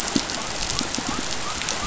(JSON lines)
{"label": "biophony", "recorder": "SoundTrap 500"}